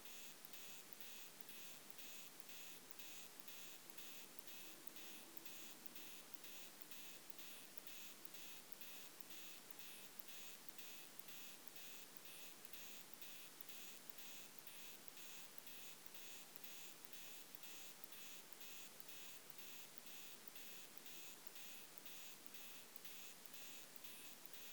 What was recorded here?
Isophya kraussii, an orthopteran